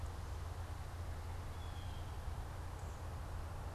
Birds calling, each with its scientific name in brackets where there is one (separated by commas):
Blue Jay (Cyanocitta cristata)